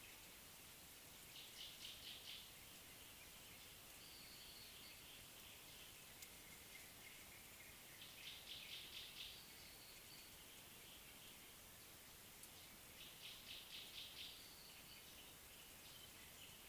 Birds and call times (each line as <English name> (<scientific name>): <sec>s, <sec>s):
Gray-backed Camaroptera (Camaroptera brevicaudata): 1.9s, 13.8s
Chestnut-throated Apalis (Apalis porphyrolaema): 4.4s